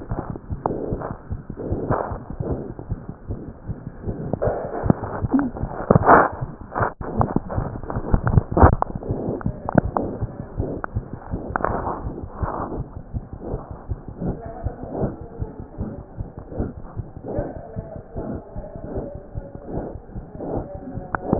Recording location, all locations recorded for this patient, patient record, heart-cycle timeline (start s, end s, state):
mitral valve (MV)
aortic valve (AV)+pulmonary valve (PV)+tricuspid valve (TV)+mitral valve (MV)
#Age: Child
#Sex: Male
#Height: 79.0 cm
#Weight: 9.79 kg
#Pregnancy status: False
#Murmur: Present
#Murmur locations: mitral valve (MV)+pulmonary valve (PV)+tricuspid valve (TV)
#Most audible location: tricuspid valve (TV)
#Systolic murmur timing: Holosystolic
#Systolic murmur shape: Plateau
#Systolic murmur grading: I/VI
#Systolic murmur pitch: Low
#Systolic murmur quality: Harsh
#Diastolic murmur timing: nan
#Diastolic murmur shape: nan
#Diastolic murmur grading: nan
#Diastolic murmur pitch: nan
#Diastolic murmur quality: nan
#Outcome: Abnormal
#Campaign: 2015 screening campaign
0.00	12.76	unannotated
12.76	12.84	S1
12.84	12.95	systole
12.95	13.01	S2
13.01	13.13	diastole
13.13	13.21	S1
13.21	13.32	systole
13.32	13.38	S2
13.38	13.52	diastole
13.52	13.59	S1
13.59	13.69	systole
13.69	13.77	S2
13.77	13.88	diastole
13.88	13.95	S1
13.95	14.07	systole
14.07	14.12	S2
14.12	14.26	diastole
14.26	14.36	S1
14.36	14.43	systole
14.43	14.49	S2
14.49	14.61	diastole
14.61	14.71	S1
14.71	14.81	systole
14.81	14.86	S2
14.86	14.98	diastole
14.98	15.11	S1
15.11	15.18	systole
15.18	15.25	S2
15.25	15.38	diastole
15.38	15.46	S1
15.46	15.57	systole
15.57	15.63	S2
15.63	15.79	diastole
15.79	15.86	S1
15.86	15.96	systole
15.96	16.03	S2
16.03	16.17	diastole
16.17	16.24	S1
16.24	16.35	systole
16.35	16.43	S2
16.43	16.56	diastole
16.56	16.66	S1
16.66	16.74	systole
16.74	16.82	S2
16.82	16.95	diastole
16.95	17.03	S1
17.03	17.14	systole
17.14	17.19	S2
17.19	21.39	unannotated